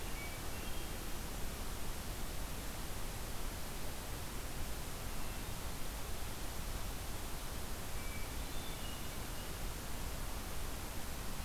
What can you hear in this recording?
Hermit Thrush